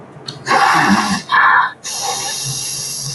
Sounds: Sniff